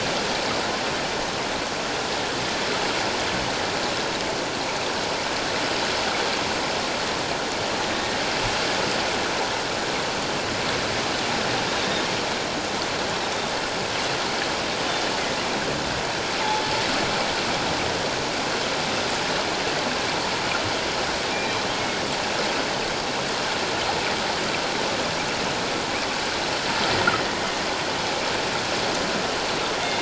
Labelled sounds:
21.3	21.6	killer whale, northern resident, G clan, 2.3 to 2.5 kHz

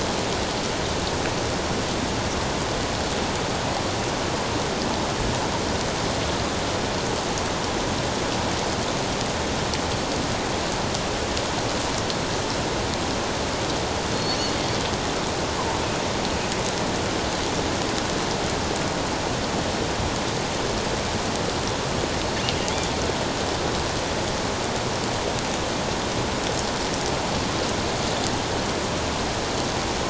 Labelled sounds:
14.1	14.5	killer whale, offshore, 4.2 to 4.6 kHz

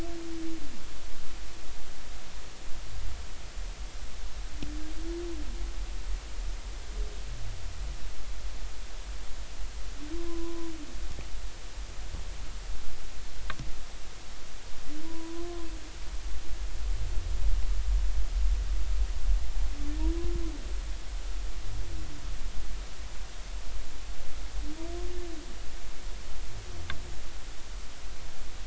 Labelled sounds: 10.3	10.7	humpback whale, 0.96 to 1.1 kHz
15.1	15.7	humpback whale, 0.93 to 1.1 kHz

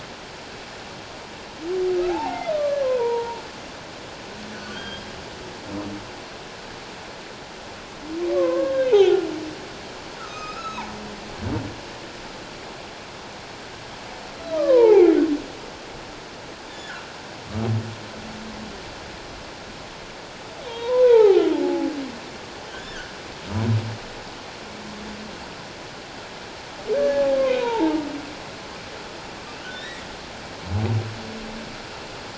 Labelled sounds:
2.1	3.4	humpback whale, 0.78 to 2.2 kHz
4.5	5.0	humpback whale, 1.4 to 4.8 kHz
8.3	9.3	humpback whale, 0.78 to 3.8 kHz
10.2	10.9	humpback whale, 1.2 to 6.7 kHz
14.5	15.2	humpback whale, 0.78 to 2.5 kHz
16.7	16.9	humpback whale, 3.4 to 3.7 kHz
20.6	21.9	humpback whale, 0.78 to 3.3 kHz
22.7	23.1	humpback whale, 1.4 to 3.7 kHz
26.9	28.0	humpback whale, 0.78 to 1.8 kHz
29.7	30.0	humpback whale, 1.7 to 5.8 kHz

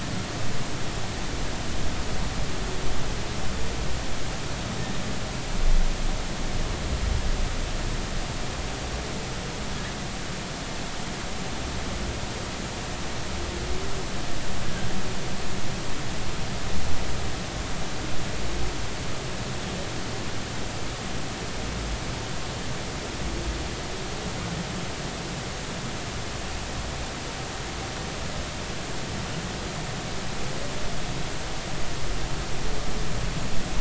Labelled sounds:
14.6	14.9	humpback whale, 1.5 to 1.7 kHz

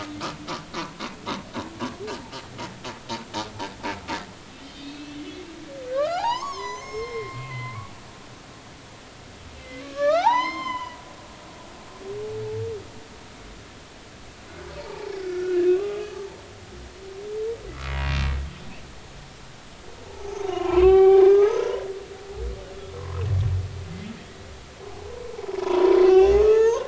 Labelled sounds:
4.7	7.8	humpback whale, 0.80 to 7.3 kHz
9.6	11.0	humpback whale, 0.80 to 7.4 kHz
14.8	16.4	humpback whale, 0.80 to 2.0 kHz
18.0	18.3	humpback whale, 2.4 to 2.8 kHz
20.0	21.8	humpback whale, 0.80 to 6.2 kHz
23.0	23.2	humpback whale, 0.96 to 1.1 kHz
25.6	26.8	humpback whale, 0.83 to 3.6 kHz

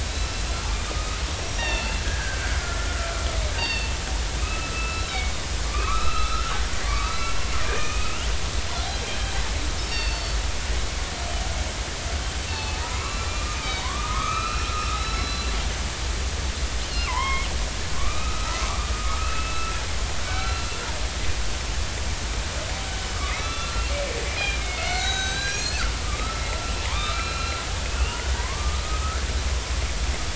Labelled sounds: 0.1	0.3	killer whale, northern resident, 3.7 to 4.1 kHz
1.4	4.0	killer whale, northern resident, 1.3 to 5.8 kHz
4.4	5.3	killer whale, northern resident, 1.2 to 2.7 kHz
5.6	9.3	killer whale, northern resident, 0.99 to 4.1 kHz
9.8	10.4	killer whale, northern resident, 2.6 to 5.6 kHz
12.5	14.7	killer whale, northern resident, 0.83 to 6.5 kHz
15.2	15.5	killer whale, northern resident, 3.9 to 4.1 kHz
16.9	17.5	killer whale, northern resident, 0.80 to 3.3 kHz
18.0	18.6	killer whale, northern resident, 1.1 to 2.6 kHz
18.9	19.8	killer whale, northern resident, 1.2 to 2.7 kHz
20.3	20.7	killer whale, northern resident, 1.2 to 4.1 kHz
22.9	23.9	killer whale, northern resident, 1.1 to 4.1 kHz
24.3	27.6	killer whale, northern resident, 0.86 to 6.4 kHz
28.3	29.2	killer whale, northern resident, 0.86 to 2.2 kHz

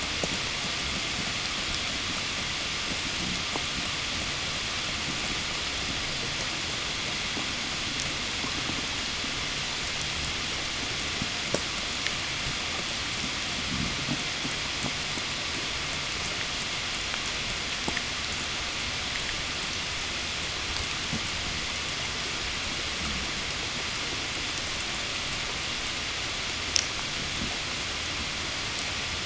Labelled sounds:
15.5	19.2	killer whale, 6.5 to 8.0 kHz

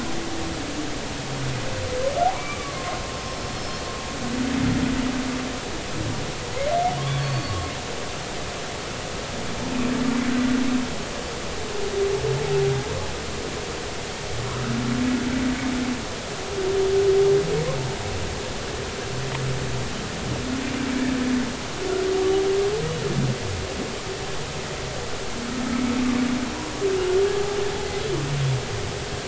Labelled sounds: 2.3	3.4	humpback whale, 0.96 to 5.4 kHz
7.0	7.6	humpback whale, 1.0 to 4.5 kHz

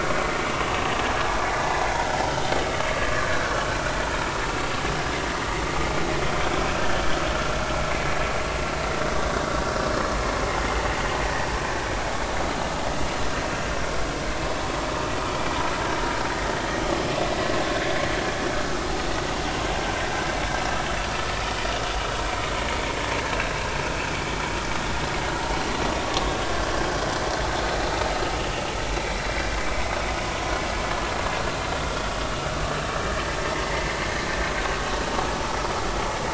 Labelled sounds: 20.1	20.4	vessel noise, 1.5 to 1.7 kHz
26.0	26.3	vessel noise, 1.0 to 1.2 kHz
33.0	34.0	vessel noise, 1.6 to 2.2 kHz

